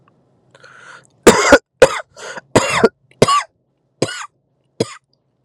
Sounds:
Cough